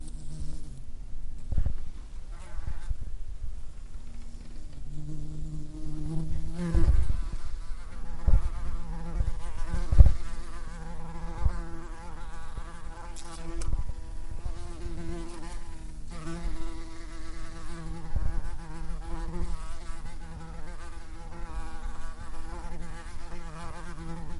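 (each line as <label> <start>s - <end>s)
A bug is buzzing. 0.0s - 24.4s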